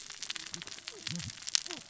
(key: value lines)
label: biophony, cascading saw
recorder: SoundTrap 600 or HydroMoth